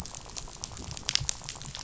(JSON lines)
{"label": "biophony, rattle", "recorder": "SoundTrap 500"}